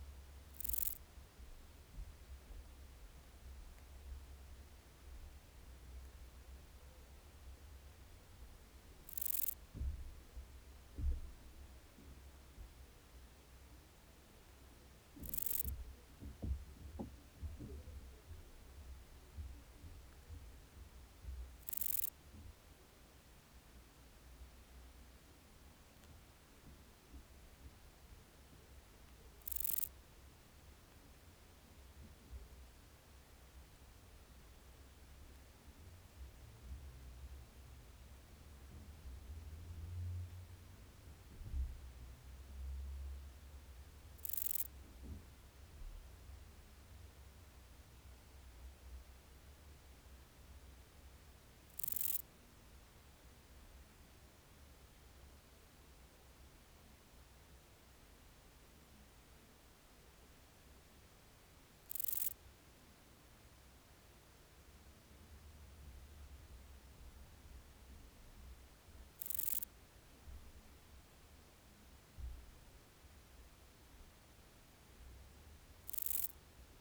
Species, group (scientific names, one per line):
Euthystira brachyptera
Orthoptera